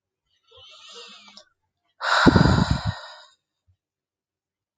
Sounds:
Sigh